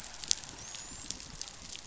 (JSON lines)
{"label": "biophony, dolphin", "recorder": "SoundTrap 500"}